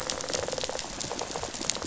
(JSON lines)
{"label": "biophony, rattle response", "recorder": "SoundTrap 500"}